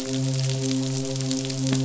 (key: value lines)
label: biophony, midshipman
recorder: SoundTrap 500